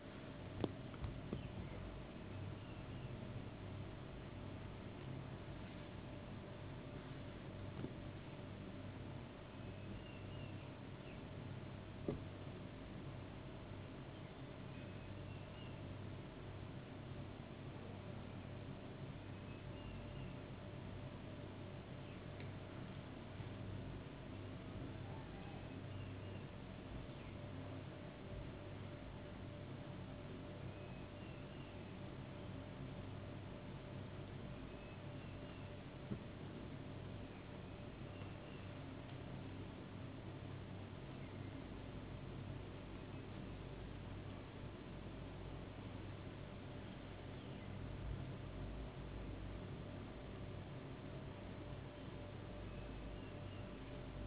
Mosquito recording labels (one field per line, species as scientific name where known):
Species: no mosquito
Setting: insect culture